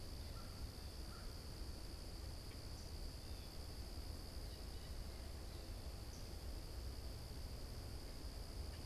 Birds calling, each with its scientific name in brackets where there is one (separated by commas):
Blue Jay (Cyanocitta cristata), American Crow (Corvus brachyrhynchos)